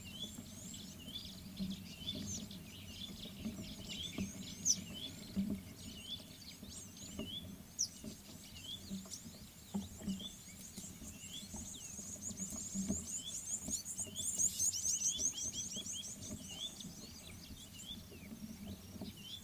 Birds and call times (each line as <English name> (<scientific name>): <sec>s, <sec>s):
White-browed Sparrow-Weaver (Plocepasser mahali): 3.2s
White-browed Robin-Chat (Cossypha heuglini): 7.4s
Red-cheeked Cordonbleu (Uraeginthus bengalus): 14.5s
Gabar Goshawk (Micronisus gabar): 15.6s